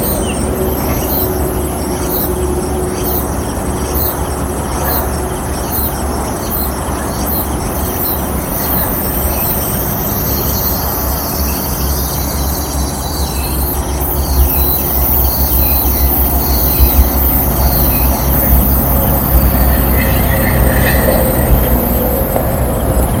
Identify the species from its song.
Meimuna opalifera